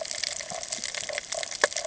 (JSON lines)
{"label": "ambient", "recorder": "HydroMoth"}